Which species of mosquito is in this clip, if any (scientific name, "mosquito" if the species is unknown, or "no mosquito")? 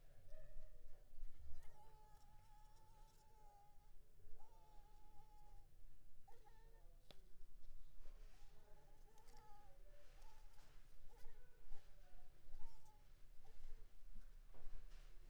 Anopheles maculipalpis